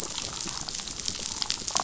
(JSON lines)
{"label": "biophony, damselfish", "recorder": "SoundTrap 500"}